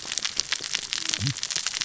{"label": "biophony, cascading saw", "recorder": "SoundTrap 600 or HydroMoth"}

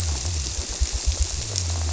{"label": "biophony", "recorder": "SoundTrap 300"}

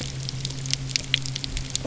{"label": "anthrophony, boat engine", "recorder": "SoundTrap 300"}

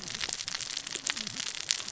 {"label": "biophony, cascading saw", "recorder": "SoundTrap 600 or HydroMoth"}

